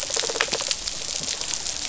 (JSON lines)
{"label": "biophony, rattle response", "recorder": "SoundTrap 500"}